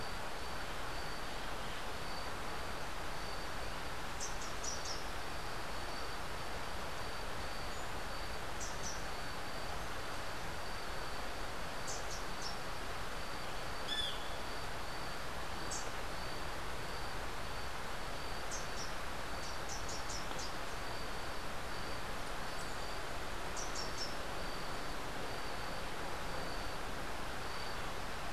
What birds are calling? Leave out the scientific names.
Rufous-capped Warbler, Great Kiskadee